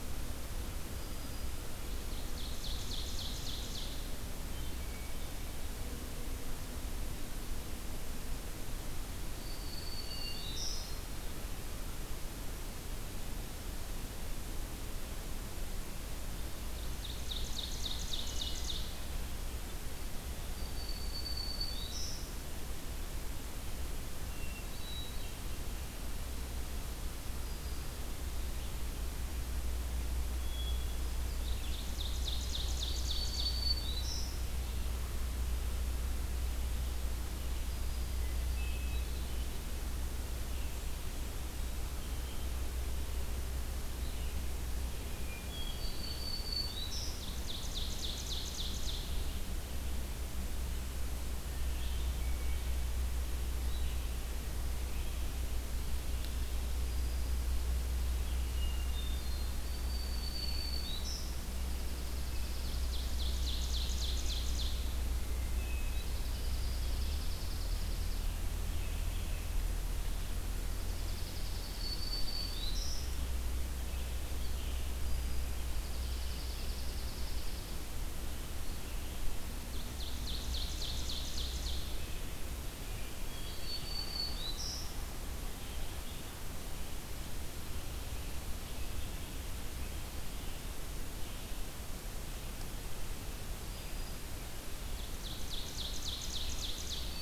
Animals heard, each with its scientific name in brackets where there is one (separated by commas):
Black-throated Green Warbler (Setophaga virens), Pine Warbler (Setophaga pinus), Ovenbird (Seiurus aurocapilla), Red-eyed Vireo (Vireo olivaceus), Hermit Thrush (Catharus guttatus)